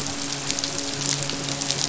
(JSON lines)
{"label": "biophony, midshipman", "recorder": "SoundTrap 500"}